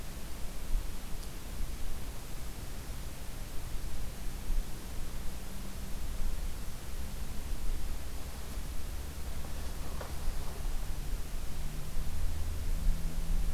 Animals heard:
forest ambience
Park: Acadia National Park